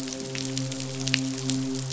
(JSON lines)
{"label": "biophony, midshipman", "recorder": "SoundTrap 500"}